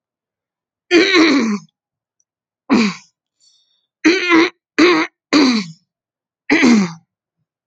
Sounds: Throat clearing